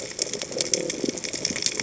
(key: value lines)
label: biophony
recorder: HydroMoth